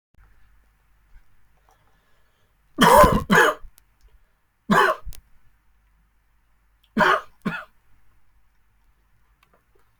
{"expert_labels": [{"quality": "good", "cough_type": "dry", "dyspnea": false, "wheezing": false, "stridor": false, "choking": false, "congestion": false, "nothing": true, "diagnosis": "upper respiratory tract infection", "severity": "mild"}], "age": 22, "gender": "male", "respiratory_condition": false, "fever_muscle_pain": true, "status": "symptomatic"}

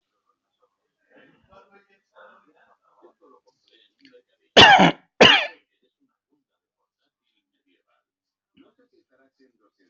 {"expert_labels": [{"quality": "good", "cough_type": "dry", "dyspnea": false, "wheezing": false, "stridor": false, "choking": false, "congestion": false, "nothing": true, "diagnosis": "upper respiratory tract infection", "severity": "mild"}]}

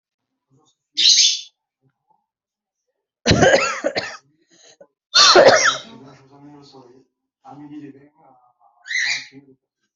{"expert_labels": [{"quality": "poor", "cough_type": "dry", "dyspnea": true, "wheezing": true, "stridor": false, "choking": false, "congestion": false, "nothing": false, "diagnosis": "lower respiratory tract infection", "severity": "mild"}], "age": 34, "gender": "female", "respiratory_condition": false, "fever_muscle_pain": false, "status": "healthy"}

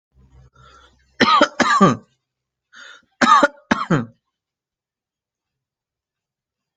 {"expert_labels": [{"quality": "good", "cough_type": "dry", "dyspnea": false, "wheezing": false, "stridor": false, "choking": false, "congestion": false, "nothing": true, "diagnosis": "upper respiratory tract infection", "severity": "mild"}], "age": 30, "gender": "male", "respiratory_condition": false, "fever_muscle_pain": false, "status": "healthy"}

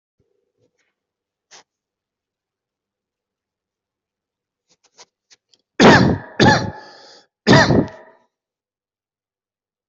{"expert_labels": [{"quality": "good", "cough_type": "dry", "dyspnea": false, "wheezing": true, "stridor": false, "choking": false, "congestion": false, "nothing": false, "diagnosis": "obstructive lung disease", "severity": "mild"}], "age": 31, "gender": "male", "respiratory_condition": false, "fever_muscle_pain": false, "status": "healthy"}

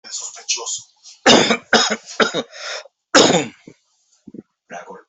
{"expert_labels": [{"quality": "good", "cough_type": "wet", "dyspnea": false, "wheezing": false, "stridor": false, "choking": false, "congestion": false, "nothing": true, "diagnosis": "upper respiratory tract infection", "severity": "mild"}]}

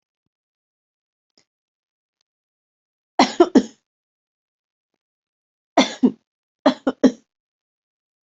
{"expert_labels": [{"quality": "good", "cough_type": "dry", "dyspnea": false, "wheezing": false, "stridor": false, "choking": false, "congestion": false, "nothing": true, "diagnosis": "healthy cough", "severity": "pseudocough/healthy cough"}], "age": 32, "gender": "female", "respiratory_condition": true, "fever_muscle_pain": true, "status": "COVID-19"}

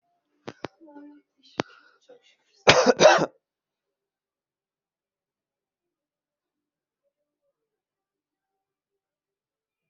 {"expert_labels": [{"quality": "ok", "cough_type": "dry", "dyspnea": false, "wheezing": false, "stridor": false, "choking": false, "congestion": false, "nothing": true, "diagnosis": "lower respiratory tract infection", "severity": "mild"}], "age": 32, "gender": "male", "respiratory_condition": false, "fever_muscle_pain": false, "status": "healthy"}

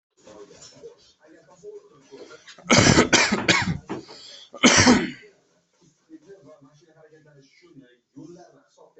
{"expert_labels": [{"quality": "good", "cough_type": "wet", "dyspnea": false, "wheezing": false, "stridor": false, "choking": false, "congestion": false, "nothing": true, "diagnosis": "upper respiratory tract infection", "severity": "mild"}], "age": 24, "gender": "male", "respiratory_condition": true, "fever_muscle_pain": false, "status": "COVID-19"}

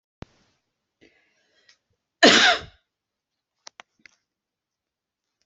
{"expert_labels": [{"quality": "ok", "cough_type": "dry", "dyspnea": false, "wheezing": false, "stridor": false, "choking": false, "congestion": false, "nothing": true, "diagnosis": "lower respiratory tract infection", "severity": "mild"}]}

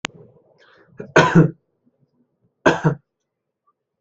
{"expert_labels": [{"quality": "good", "cough_type": "dry", "dyspnea": false, "wheezing": false, "stridor": false, "choking": false, "congestion": false, "nothing": true, "diagnosis": "healthy cough", "severity": "pseudocough/healthy cough"}], "age": 27, "gender": "male", "respiratory_condition": false, "fever_muscle_pain": false, "status": "COVID-19"}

